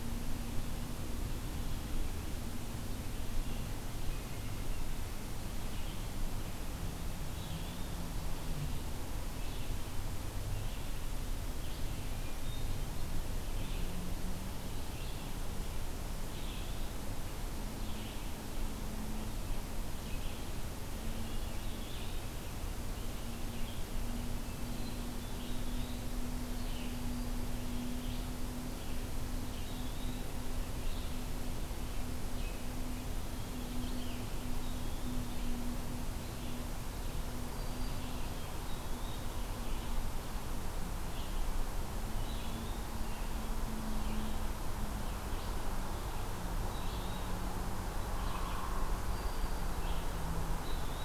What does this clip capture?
Red-eyed Vireo, Hermit Thrush, Black-throated Green Warbler, Eastern Wood-Pewee, Hairy Woodpecker